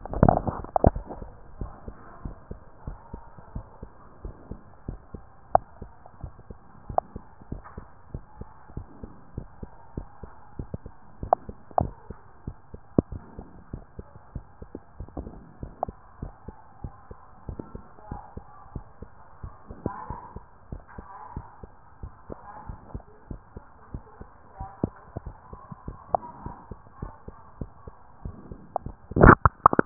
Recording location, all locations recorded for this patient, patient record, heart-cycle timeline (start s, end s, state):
mitral valve (MV)
aortic valve (AV)+pulmonary valve (PV)+tricuspid valve (TV)+mitral valve (MV)
#Age: nan
#Sex: Male
#Height: 133.0 cm
#Weight: 35.2 kg
#Pregnancy status: False
#Murmur: Absent
#Murmur locations: nan
#Most audible location: nan
#Systolic murmur timing: nan
#Systolic murmur shape: nan
#Systolic murmur grading: nan
#Systolic murmur pitch: nan
#Systolic murmur quality: nan
#Diastolic murmur timing: nan
#Diastolic murmur shape: nan
#Diastolic murmur grading: nan
#Diastolic murmur pitch: nan
#Diastolic murmur quality: nan
#Outcome: Normal
#Campaign: 2014 screening campaign
0.00	1.58	unannotated
1.58	1.72	S1
1.72	1.86	systole
1.86	1.96	S2
1.96	2.24	diastole
2.24	2.36	S1
2.36	2.50	systole
2.50	2.60	S2
2.60	2.86	diastole
2.86	2.98	S1
2.98	3.12	systole
3.12	3.22	S2
3.22	3.54	diastole
3.54	3.66	S1
3.66	3.82	systole
3.82	3.90	S2
3.90	4.24	diastole
4.24	4.36	S1
4.36	4.50	systole
4.50	4.60	S2
4.60	4.88	diastole
4.88	5.00	S1
5.00	5.14	systole
5.14	5.22	S2
5.22	5.52	diastole
5.52	5.64	S1
5.64	5.80	systole
5.80	5.90	S2
5.90	6.22	diastole
6.22	6.34	S1
6.34	6.48	systole
6.48	6.58	S2
6.58	6.88	diastole
6.88	7.00	S1
7.00	7.14	systole
7.14	7.22	S2
7.22	7.50	diastole
7.50	7.62	S1
7.62	7.76	systole
7.76	7.86	S2
7.86	8.12	diastole
8.12	8.24	S1
8.24	8.38	systole
8.38	8.48	S2
8.48	8.74	diastole
8.74	8.86	S1
8.86	9.02	systole
9.02	9.12	S2
9.12	9.36	diastole
9.36	9.48	S1
9.48	9.60	systole
9.60	9.70	S2
9.70	9.96	diastole
9.96	10.08	S1
10.08	10.22	systole
10.22	10.32	S2
10.32	10.58	diastole
10.58	10.68	S1
10.68	10.84	systole
10.84	10.94	S2
10.94	11.22	diastole
11.22	11.34	S1
11.34	11.46	systole
11.46	11.56	S2
11.56	11.78	diastole
11.78	11.94	S1
11.94	12.08	systole
12.08	12.18	S2
12.18	12.46	diastole
12.46	12.56	S1
12.56	12.72	systole
12.72	12.82	S2
12.82	13.10	diastole
13.10	13.22	S1
13.22	13.36	systole
13.36	13.46	S2
13.46	13.72	diastole
13.72	13.84	S1
13.84	13.98	systole
13.98	14.08	S2
14.08	14.34	diastole
14.34	14.44	S1
14.44	14.62	systole
14.62	14.70	S2
14.70	15.00	diastole
15.00	15.08	S1
15.08	15.18	systole
15.18	15.32	S2
15.32	15.62	diastole
15.62	15.72	S1
15.72	15.86	systole
15.86	15.96	S2
15.96	16.20	diastole
16.20	16.32	S1
16.32	16.46	systole
16.46	16.56	S2
16.56	16.82	diastole
16.82	16.94	S1
16.94	17.10	systole
17.10	17.18	S2
17.18	17.48	diastole
17.48	17.60	S1
17.60	17.74	systole
17.74	17.84	S2
17.84	18.10	diastole
18.10	18.22	S1
18.22	18.36	systole
18.36	18.46	S2
18.46	18.74	diastole
18.74	18.86	S1
18.86	19.02	systole
19.02	19.10	S2
19.10	19.42	diastole
19.42	19.54	S1
19.54	19.70	systole
19.70	19.78	S2
19.78	20.08	diastole
20.08	20.20	S1
20.20	20.34	systole
20.34	20.44	S2
20.44	20.70	diastole
20.70	20.82	S1
20.82	20.96	systole
20.96	21.08	S2
21.08	21.34	diastole
21.34	21.46	S1
21.46	21.62	systole
21.62	21.72	S2
21.72	22.02	diastole
22.02	22.12	S1
22.12	22.28	systole
22.28	22.38	S2
22.38	22.68	diastole
22.68	22.78	S1
22.78	22.94	systole
22.94	23.04	S2
23.04	23.30	diastole
23.30	23.40	S1
23.40	23.54	systole
23.54	23.64	S2
23.64	23.92	diastole
23.92	24.04	S1
24.04	24.20	systole
24.20	24.28	S2
24.28	24.58	diastole
24.58	29.86	unannotated